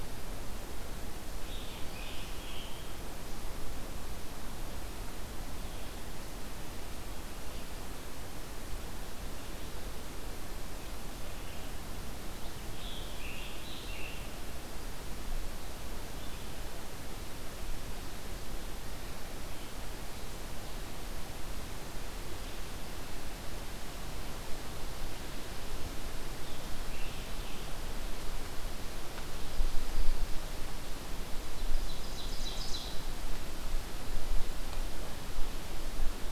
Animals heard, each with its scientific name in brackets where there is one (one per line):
Ovenbird (Seiurus aurocapilla)
Red-eyed Vireo (Vireo olivaceus)
Scarlet Tanager (Piranga olivacea)